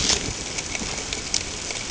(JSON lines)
{"label": "ambient", "recorder": "HydroMoth"}